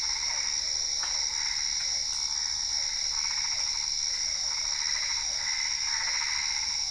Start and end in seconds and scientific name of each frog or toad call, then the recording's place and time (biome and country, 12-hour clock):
0.0	6.9	Boana albopunctata
0.1	0.9	Boana lundii
2.5	6.3	Physalaemus cuvieri
4.2	5.6	Boana lundii
Cerrado, Brazil, 8:30pm